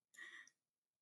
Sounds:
Laughter